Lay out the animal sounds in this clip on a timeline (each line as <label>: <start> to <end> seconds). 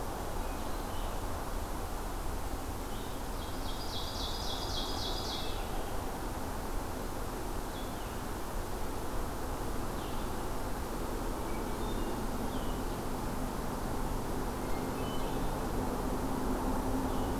Red-eyed Vireo (Vireo olivaceus): 0.0 to 17.4 seconds
Ovenbird (Seiurus aurocapilla): 3.2 to 5.8 seconds
Hermit Thrush (Catharus guttatus): 11.2 to 12.5 seconds
Hermit Thrush (Catharus guttatus): 14.4 to 15.7 seconds